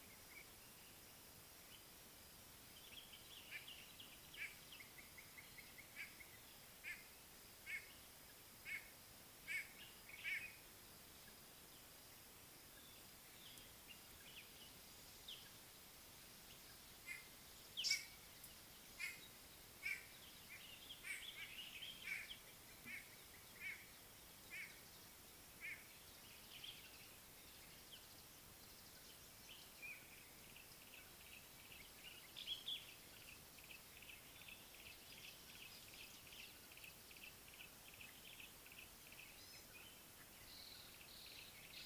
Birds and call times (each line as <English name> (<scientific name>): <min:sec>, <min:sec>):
Common Bulbul (Pycnonotus barbatus): 0:03.2, 0:21.6, 0:26.5, 0:32.4
Slate-colored Boubou (Laniarius funebris): 0:05.3
White-bellied Go-away-bird (Corythaixoides leucogaster): 0:07.6, 0:17.1, 0:19.8, 0:24.5
Scarlet-chested Sunbird (Chalcomitra senegalensis): 0:15.2
African Paradise-Flycatcher (Terpsiphone viridis): 0:17.8
Yellow-breasted Apalis (Apalis flavida): 0:31.2, 0:34.3, 0:40.7
Gray-backed Camaroptera (Camaroptera brevicaudata): 0:39.4